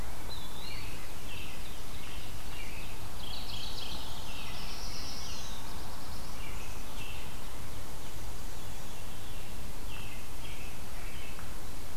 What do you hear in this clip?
Eastern Wood-Pewee, American Robin, Mourning Warbler, Black-throated Blue Warbler, Black-and-white Warbler, Veery